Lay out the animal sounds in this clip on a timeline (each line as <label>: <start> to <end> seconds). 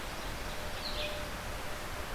Red-eyed Vireo (Vireo olivaceus): 0.8 to 2.1 seconds